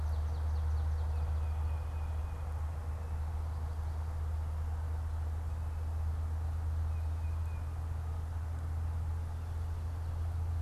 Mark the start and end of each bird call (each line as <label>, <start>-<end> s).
unidentified bird, 0.0-1.4 s
Tufted Titmouse (Baeolophus bicolor), 0.0-7.9 s